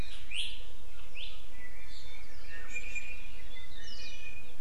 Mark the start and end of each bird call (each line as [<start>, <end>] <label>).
[1.80, 2.20] Iiwi (Drepanis coccinea)
[2.50, 3.30] Iiwi (Drepanis coccinea)
[3.60, 4.60] Iiwi (Drepanis coccinea)
[3.80, 4.20] Hawaii Akepa (Loxops coccineus)